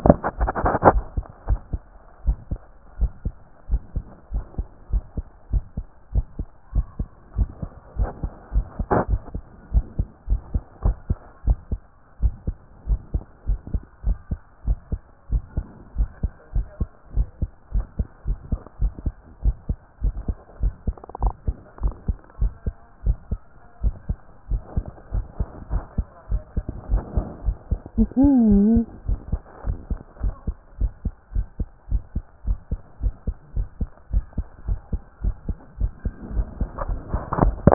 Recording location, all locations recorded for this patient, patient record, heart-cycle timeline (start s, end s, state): pulmonary valve (PV)
aortic valve (AV)+pulmonary valve (PV)+tricuspid valve (TV)+mitral valve (MV)
#Age: Child
#Sex: Female
#Height: 142.0 cm
#Weight: 32.4 kg
#Pregnancy status: False
#Murmur: Absent
#Murmur locations: nan
#Most audible location: nan
#Systolic murmur timing: nan
#Systolic murmur shape: nan
#Systolic murmur grading: nan
#Systolic murmur pitch: nan
#Systolic murmur quality: nan
#Diastolic murmur timing: nan
#Diastolic murmur shape: nan
#Diastolic murmur grading: nan
#Diastolic murmur pitch: nan
#Diastolic murmur quality: nan
#Outcome: Abnormal
#Campaign: 2014 screening campaign
0.00	1.99	unannotated
1.99	2.26	diastole
2.26	2.38	S1
2.38	2.50	systole
2.50	2.60	S2
2.60	3.00	diastole
3.00	3.12	S1
3.12	3.24	systole
3.24	3.34	S2
3.34	3.70	diastole
3.70	3.82	S1
3.82	3.94	systole
3.94	4.04	S2
4.04	4.32	diastole
4.32	4.44	S1
4.44	4.58	systole
4.58	4.66	S2
4.66	4.92	diastole
4.92	5.04	S1
5.04	5.16	systole
5.16	5.26	S2
5.26	5.52	diastole
5.52	5.64	S1
5.64	5.76	systole
5.76	5.86	S2
5.86	6.14	diastole
6.14	6.26	S1
6.26	6.38	systole
6.38	6.48	S2
6.48	6.74	diastole
6.74	6.86	S1
6.86	6.98	systole
6.98	7.08	S2
7.08	7.36	diastole
7.36	7.48	S1
7.48	7.62	systole
7.62	7.70	S2
7.70	7.98	diastole
7.98	8.10	S1
8.10	8.22	systole
8.22	8.32	S2
8.32	8.54	diastole
8.54	8.66	S1
8.66	8.78	systole
8.78	8.86	S2
8.86	9.10	diastole
9.10	9.20	S1
9.20	9.34	systole
9.34	9.42	S2
9.42	9.72	diastole
9.72	9.84	S1
9.84	9.98	systole
9.98	10.08	S2
10.08	10.30	diastole
10.30	10.40	S1
10.40	10.54	systole
10.54	10.62	S2
10.62	10.84	diastole
10.84	10.96	S1
10.96	11.08	systole
11.08	11.18	S2
11.18	11.46	diastole
11.46	11.58	S1
11.58	11.70	systole
11.70	11.81	S2
11.81	12.22	diastole
12.22	12.34	S1
12.34	12.46	systole
12.46	12.56	S2
12.56	12.88	diastole
12.88	13.00	S1
13.00	13.14	systole
13.14	13.22	S2
13.22	13.48	diastole
13.48	13.60	S1
13.60	13.72	systole
13.72	13.82	S2
13.82	14.06	diastole
14.06	14.18	S1
14.18	14.30	systole
14.30	14.40	S2
14.40	14.66	diastole
14.66	14.78	S1
14.78	14.90	systole
14.90	15.00	S2
15.00	15.30	diastole
15.30	15.42	S1
15.42	15.56	systole
15.56	15.66	S2
15.66	15.98	diastole
15.98	16.08	S1
16.08	16.22	systole
16.22	16.32	S2
16.32	16.54	diastole
16.54	16.66	S1
16.66	16.80	systole
16.80	16.88	S2
16.88	17.16	diastole
17.16	17.28	S1
17.28	17.40	systole
17.40	17.50	S2
17.50	17.74	diastole
17.74	17.86	S1
17.86	17.98	systole
17.98	18.08	S2
18.08	18.26	diastole
18.26	18.38	S1
18.38	18.50	systole
18.50	18.60	S2
18.60	18.80	diastole
18.80	18.92	S1
18.92	19.04	systole
19.04	19.14	S2
19.14	19.44	diastole
19.44	19.56	S1
19.56	19.68	systole
19.68	19.78	S2
19.78	20.04	diastole
20.04	20.14	S1
20.14	20.28	systole
20.28	20.36	S2
20.36	20.62	diastole
20.62	20.74	S1
20.74	20.86	systole
20.86	20.96	S2
20.96	21.22	diastole
21.22	21.34	S1
21.34	21.46	systole
21.46	21.56	S2
21.56	21.82	diastole
21.82	21.94	S1
21.94	22.08	systole
22.08	22.16	S2
22.16	22.40	diastole
22.40	22.52	S1
22.52	22.66	systole
22.66	22.74	S2
22.74	23.04	diastole
23.04	23.16	S1
23.16	23.30	systole
23.30	23.40	S2
23.40	23.82	diastole
23.82	23.94	S1
23.94	24.08	systole
24.08	24.18	S2
24.18	24.50	diastole
24.50	24.62	S1
24.62	24.76	systole
24.76	24.84	S2
24.84	25.14	diastole
25.14	25.26	S1
25.26	25.38	systole
25.38	25.48	S2
25.48	25.72	diastole
25.72	25.84	S1
25.84	25.96	systole
25.96	26.06	S2
26.06	26.30	diastole
26.30	26.42	S1
26.42	26.56	systole
26.56	26.64	S2
26.64	26.90	diastole
26.90	27.02	S1
27.02	27.16	systole
27.16	27.26	S2
27.26	27.46	diastole
27.46	27.56	S1
27.56	27.70	systole
27.70	27.80	S2
27.80	28.00	diastole
28.00	37.74	unannotated